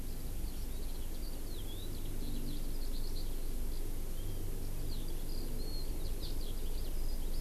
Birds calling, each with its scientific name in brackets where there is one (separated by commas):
Eurasian Skylark (Alauda arvensis)